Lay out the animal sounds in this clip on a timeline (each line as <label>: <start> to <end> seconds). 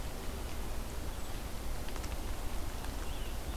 Red-eyed Vireo (Vireo olivaceus): 0.0 to 3.6 seconds
Rose-breasted Grosbeak (Pheucticus ludovicianus): 2.6 to 3.6 seconds